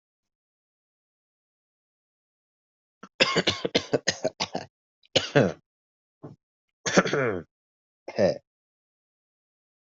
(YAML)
expert_labels:
- quality: good
  cough_type: dry
  dyspnea: false
  wheezing: false
  stridor: false
  choking: false
  congestion: false
  nothing: true
  diagnosis: healthy cough
  severity: pseudocough/healthy cough
gender: female
respiratory_condition: false
fever_muscle_pain: false
status: COVID-19